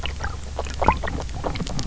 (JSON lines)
{"label": "biophony, grazing", "recorder": "SoundTrap 300"}